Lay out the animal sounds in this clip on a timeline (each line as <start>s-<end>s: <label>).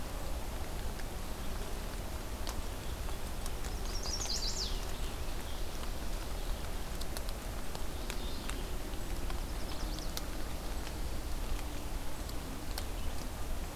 0.0s-13.8s: Red-eyed Vireo (Vireo olivaceus)
3.7s-5.0s: Chestnut-sided Warbler (Setophaga pensylvanica)
7.8s-8.7s: Mourning Warbler (Geothlypis philadelphia)
9.2s-10.2s: Chestnut-sided Warbler (Setophaga pensylvanica)